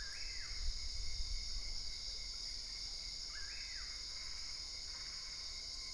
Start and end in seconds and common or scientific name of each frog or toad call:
4.1	5.6	Boana albopunctata